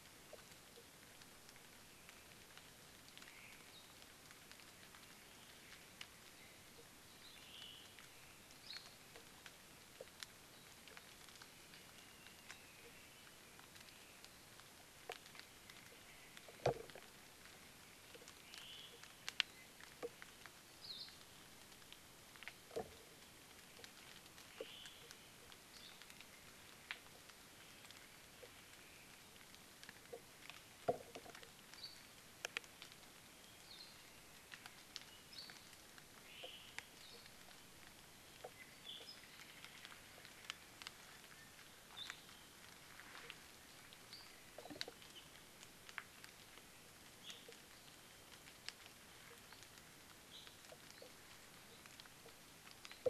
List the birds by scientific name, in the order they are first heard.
Myadestes obscurus, Loxops coccineus, Himatione sanguinea